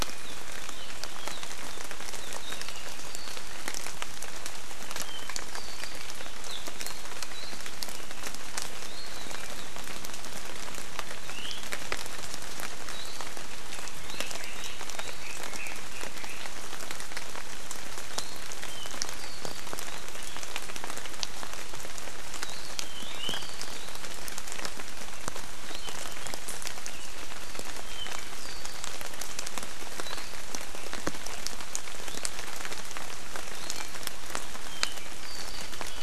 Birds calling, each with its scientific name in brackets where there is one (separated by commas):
Red-billed Leiothrix (Leiothrix lutea), Warbling White-eye (Zosterops japonicus), Iiwi (Drepanis coccinea)